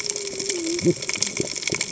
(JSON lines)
{"label": "biophony, cascading saw", "recorder": "HydroMoth"}